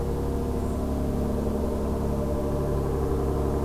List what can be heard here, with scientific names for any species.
Zonotrichia albicollis